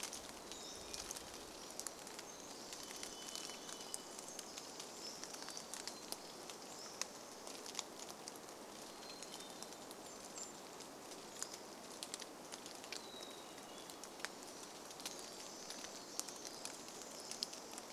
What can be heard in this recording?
Hermit Thrush song, Pacific-slope Flycatcher song, Pacific Wren song, rain, Varied Thrush song, Golden-crowned Kinglet song